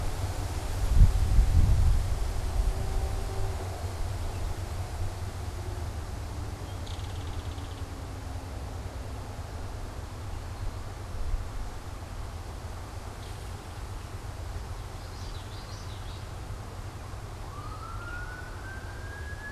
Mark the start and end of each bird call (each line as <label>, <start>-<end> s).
Belted Kingfisher (Megaceryle alcyon), 6.7-8.0 s
Eastern Towhee (Pipilo erythrophthalmus), 10.3-11.5 s
Belted Kingfisher (Megaceryle alcyon), 12.9-14.9 s
Common Yellowthroat (Geothlypis trichas), 14.7-16.5 s